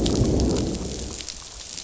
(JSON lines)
{"label": "biophony, growl", "recorder": "SoundTrap 500"}